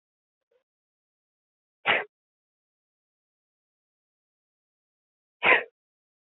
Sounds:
Sneeze